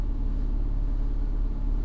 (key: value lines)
label: anthrophony, boat engine
recorder: SoundTrap 300